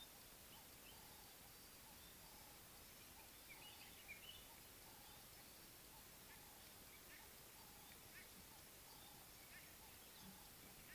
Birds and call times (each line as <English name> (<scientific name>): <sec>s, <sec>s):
Ring-necked Dove (Streptopelia capicola): 2.4s
White-browed Robin-Chat (Cossypha heuglini): 4.2s